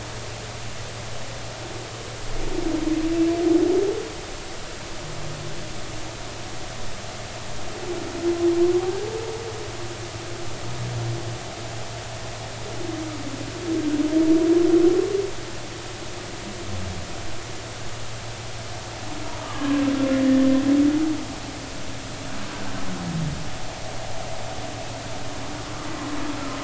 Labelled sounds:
19.4	19.8	humpback whale, 0.99 to 1.3 kHz
25.8	26.1	humpback whale, 1.9 to 2.0 kHz

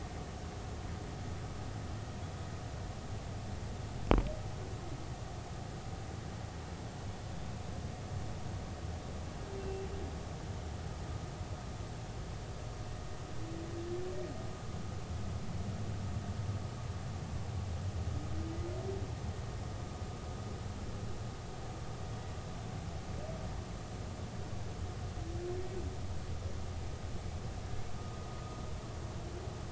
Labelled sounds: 9.6	9.9	humpback whale, 2.7 to 2.8 kHz

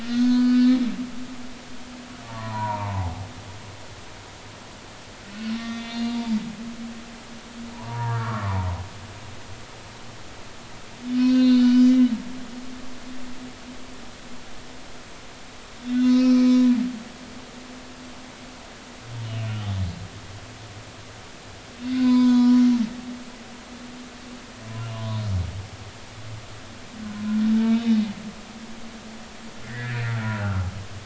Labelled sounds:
0.0	0.7	humpback whale, 0.93 to 6.5 kHz
2.2	2.9	humpback whale, 0.80 to 1.2 kHz
5.6	6.2	humpback whale, 1.1 to 3.6 kHz
7.7	8.7	humpback whale, 0.80 to 1.9 kHz
11.2	12.1	humpback whale, 1.3 to 5.7 kHz
15.8	16.6	humpback whale, 1.2 to 5.5 kHz
22.0	22.7	humpback whale, 0.93 to 5.7 kHz
24.8	25.2	humpback whale, 0.86 to 3.0 kHz
27.7	28.0	humpback whale, 2.4 to 3.8 kHz
29.6	30.6	humpback whale, 1.2 to 2.1 kHz

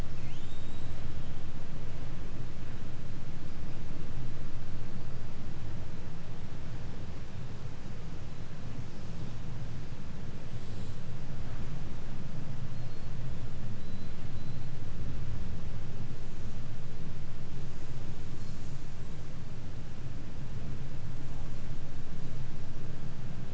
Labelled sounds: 0.0	1.2	killer whale, 1.7 to 8.0 kHz
12.5	13.2	killer whale, 3.9 to 4.7 kHz
13.7	14.8	killer whale, 3.7 to 4.5 kHz

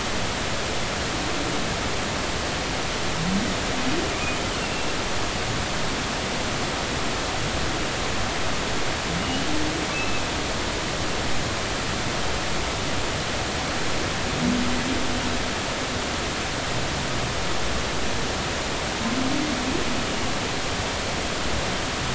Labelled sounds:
4.7	5.0	humpback whale, 2.6 to 2.8 kHz
9.2	9.5	humpback whale, 2.8 to 3.0 kHz
9.9	10.3	humpback whale, 2.5 to 2.7 kHz

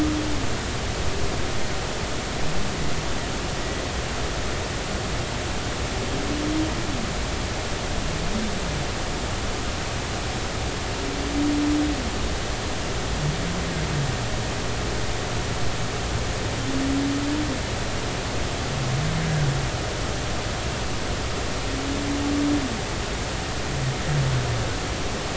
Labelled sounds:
3.6	3.8	humpback whale, 1.9 to 2.0 kHz

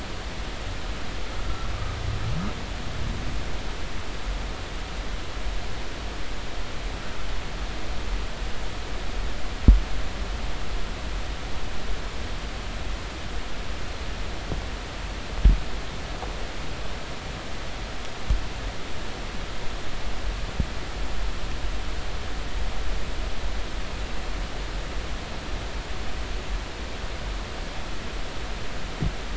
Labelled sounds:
1.4	1.7	humpback whale, 1.3 to 1.4 kHz

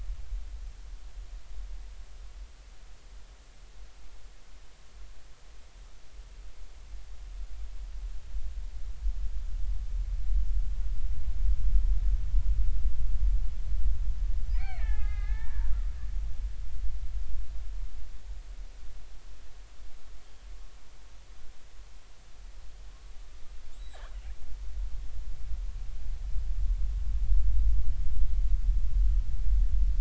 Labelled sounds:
14.5	15.7	killer whale, Bigg's (transient), 0.80 to 4.5 kHz
23.7	24.0	killer whale, Bigg's (transient), 3.7 to 7.9 kHz

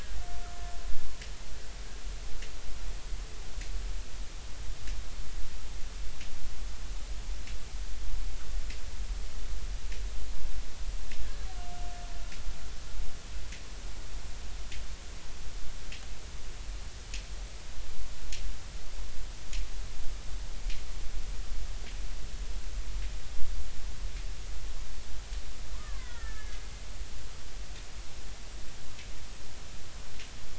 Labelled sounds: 25.7	26.6	killer whale, Bigg's (transient), 0.93 to 2.2 kHz

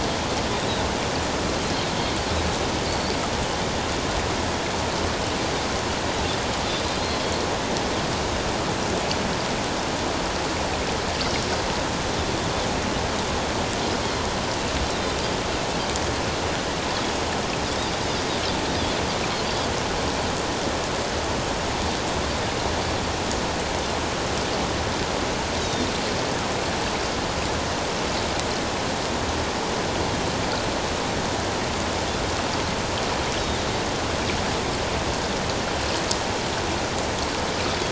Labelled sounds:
25.6	25.9	Pacific white-sided dolphin, 3.5 to 3.9 kHz
37.7	37.9	Pacific white-sided dolphin, 3.2 to 3.6 kHz

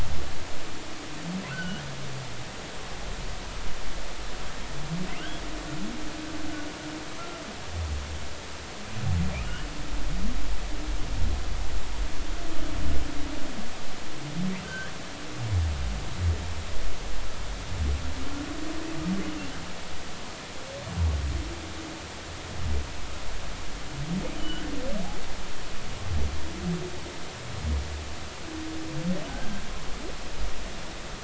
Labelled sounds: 1.5	1.9	humpback whale, 1.3 to 3.1 kHz
5.2	5.4	humpback whale, 2.5 to 3.4 kHz
9.4	9.7	humpback whale, 2.7 to 3.2 kHz
14.6	14.9	humpback whale, 1.5 to 1.7 kHz
24.4	24.7	humpback whale, 2.9 to 3.2 kHz
29.3	29.6	humpback whale, 1.5 to 1.7 kHz

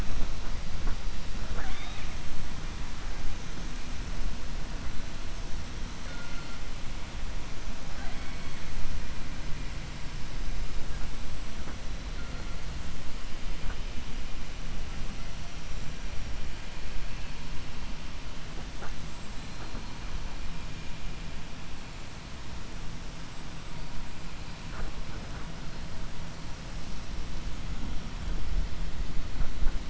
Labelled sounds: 1.4	2.1	killer whale, 0.45 to 4.4 kHz
6.0	6.5	killer whale, 0.53 to 2.2 kHz
19.0	19.4	killer whale, 7.0 to 8.0 kHz

